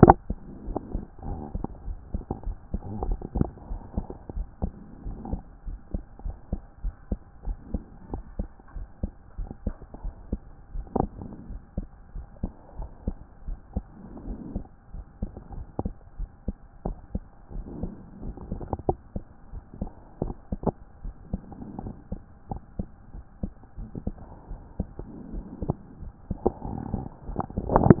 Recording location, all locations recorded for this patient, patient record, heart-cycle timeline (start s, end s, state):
pulmonary valve (PV)
aortic valve (AV)+pulmonary valve (PV)+tricuspid valve (TV)+mitral valve (MV)
#Age: Child
#Sex: Male
#Height: 144.0 cm
#Weight: 44.8 kg
#Pregnancy status: False
#Murmur: Absent
#Murmur locations: nan
#Most audible location: nan
#Systolic murmur timing: nan
#Systolic murmur shape: nan
#Systolic murmur grading: nan
#Systolic murmur pitch: nan
#Systolic murmur quality: nan
#Diastolic murmur timing: nan
#Diastolic murmur shape: nan
#Diastolic murmur grading: nan
#Diastolic murmur pitch: nan
#Diastolic murmur quality: nan
#Outcome: Normal
#Campaign: 2014 screening campaign
0.00	3.70	unannotated
3.70	3.80	S1
3.80	3.96	systole
3.96	4.06	S2
4.06	4.34	diastole
4.34	4.46	S1
4.46	4.62	systole
4.62	4.72	S2
4.72	5.06	diastole
5.06	5.18	S1
5.18	5.30	systole
5.30	5.40	S2
5.40	5.66	diastole
5.66	5.78	S1
5.78	5.92	systole
5.92	6.02	S2
6.02	6.24	diastole
6.24	6.36	S1
6.36	6.50	systole
6.50	6.60	S2
6.60	6.84	diastole
6.84	6.94	S1
6.94	7.10	systole
7.10	7.20	S2
7.20	7.46	diastole
7.46	7.58	S1
7.58	7.72	systole
7.72	7.82	S2
7.82	8.12	diastole
8.12	8.24	S1
8.24	8.38	systole
8.38	8.48	S2
8.48	8.76	diastole
8.76	8.86	S1
8.86	9.02	systole
9.02	9.12	S2
9.12	9.38	diastole
9.38	9.50	S1
9.50	9.64	systole
9.64	9.74	S2
9.74	10.04	diastole
10.04	10.14	S1
10.14	10.30	systole
10.30	10.40	S2
10.40	10.74	diastole
10.74	10.86	S1
10.86	10.98	systole
10.98	11.10	S2
11.10	11.48	diastole
11.48	11.60	S1
11.60	11.76	systole
11.76	11.86	S2
11.86	12.14	diastole
12.14	12.26	S1
12.26	12.42	systole
12.42	12.52	S2
12.52	12.78	diastole
12.78	12.90	S1
12.90	13.06	systole
13.06	13.16	S2
13.16	13.46	diastole
13.46	13.58	S1
13.58	13.74	systole
13.74	13.84	S2
13.84	14.26	diastole
14.26	14.38	S1
14.38	14.54	systole
14.54	14.64	S2
14.64	14.94	diastole
14.94	15.04	S1
15.04	15.20	systole
15.20	15.30	S2
15.30	15.54	diastole
15.54	15.66	S1
15.66	15.82	systole
15.82	15.92	S2
15.92	16.18	diastole
16.18	16.30	S1
16.30	16.46	systole
16.46	16.56	S2
16.56	16.86	diastole
16.86	16.96	S1
16.96	17.14	systole
17.14	17.22	S2
17.22	17.54	diastole
17.54	17.66	S1
17.66	17.82	systole
17.82	17.92	S2
17.92	18.22	diastole
18.22	18.34	S1
18.34	18.50	systole
18.50	18.60	S2
18.60	18.88	diastole
18.88	18.98	S1
18.98	19.14	systole
19.14	19.24	S2
19.24	19.52	diastole
19.52	19.62	S1
19.62	19.80	systole
19.80	19.90	S2
19.90	20.22	diastole
20.22	20.34	S1
20.34	20.52	systole
20.52	20.60	S2
20.60	21.04	diastole
21.04	21.14	S1
21.14	21.32	systole
21.32	21.42	S2
21.42	21.82	diastole
21.82	21.94	S1
21.94	22.10	systole
22.10	22.20	S2
22.20	22.50	diastole
22.50	22.60	S1
22.60	22.78	systole
22.78	22.88	S2
22.88	23.14	diastole
23.14	23.24	S1
23.24	23.42	systole
23.42	23.52	S2
23.52	23.78	diastole
23.78	23.88	S1
23.88	24.06	systole
24.06	24.16	S2
24.16	24.50	diastole
24.50	24.60	S1
24.60	24.78	systole
24.78	24.88	S2
24.88	25.32	diastole
25.32	25.44	S1
25.44	25.64	systole
25.64	25.76	S2
25.76	26.04	diastole
26.04	28.00	unannotated